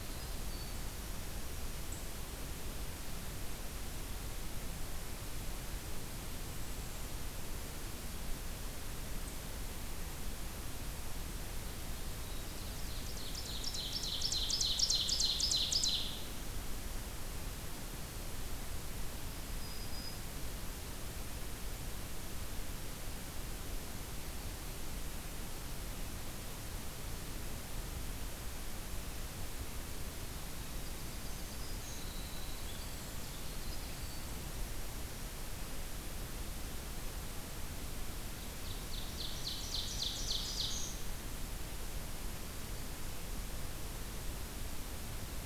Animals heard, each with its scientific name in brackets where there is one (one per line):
Black-throated Green Warbler (Setophaga virens)
Golden-crowned Kinglet (Regulus satrapa)
Winter Wren (Troglodytes hiemalis)
Ovenbird (Seiurus aurocapilla)